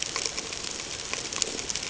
{"label": "ambient", "recorder": "HydroMoth"}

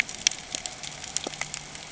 {"label": "ambient", "recorder": "HydroMoth"}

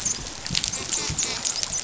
{"label": "biophony, dolphin", "recorder": "SoundTrap 500"}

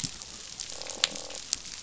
{"label": "biophony, croak", "recorder": "SoundTrap 500"}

